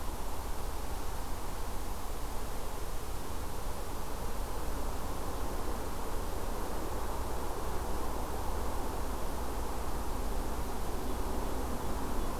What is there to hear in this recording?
forest ambience